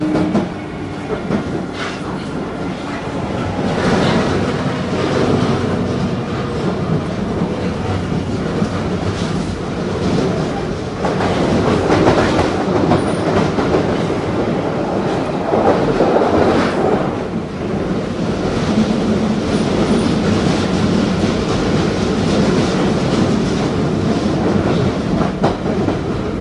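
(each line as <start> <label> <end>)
0.0 A loud, rumbling train is passing underground. 26.4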